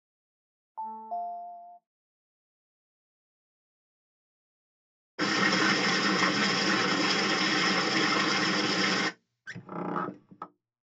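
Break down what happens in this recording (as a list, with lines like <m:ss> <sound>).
0:01 the sound of a telephone
0:05 you can hear a stream
0:09 a car is audible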